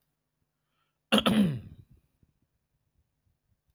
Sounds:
Throat clearing